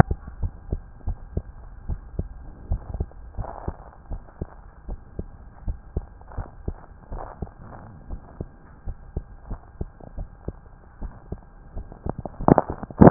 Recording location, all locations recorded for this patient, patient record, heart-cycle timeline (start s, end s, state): tricuspid valve (TV)
aortic valve (AV)+pulmonary valve (PV)+tricuspid valve (TV)+mitral valve (MV)
#Age: Child
#Sex: Male
#Height: 117.0 cm
#Weight: 23.1 kg
#Pregnancy status: False
#Murmur: Absent
#Murmur locations: nan
#Most audible location: nan
#Systolic murmur timing: nan
#Systolic murmur shape: nan
#Systolic murmur grading: nan
#Systolic murmur pitch: nan
#Systolic murmur quality: nan
#Diastolic murmur timing: nan
#Diastolic murmur shape: nan
#Diastolic murmur grading: nan
#Diastolic murmur pitch: nan
#Diastolic murmur quality: nan
#Outcome: Normal
#Campaign: 2015 screening campaign
0.00	0.36	unannotated
0.36	0.54	S1
0.54	0.70	systole
0.70	0.84	S2
0.84	1.04	diastole
1.04	1.16	S1
1.16	1.30	systole
1.30	1.44	S2
1.44	1.86	diastole
1.86	2.00	S1
2.00	2.14	systole
2.14	2.29	S2
2.29	2.68	diastole
2.68	2.82	S1
2.82	2.94	systole
2.94	3.08	S2
3.08	3.36	diastole
3.36	3.48	S1
3.48	3.62	systole
3.62	3.76	S2
3.76	4.08	diastole
4.08	4.22	S1
4.22	4.40	systole
4.40	4.50	S2
4.50	4.86	diastole
4.86	5.00	S1
5.00	5.16	systole
5.16	5.28	S2
5.28	5.63	diastole
5.63	5.78	S1
5.78	5.94	systole
5.94	6.08	S2
6.08	6.32	diastole
6.32	6.46	S1
6.46	6.64	systole
6.64	6.79	S2
6.79	7.09	diastole
7.09	7.24	S1
7.24	13.10	unannotated